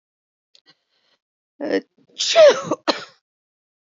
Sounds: Sneeze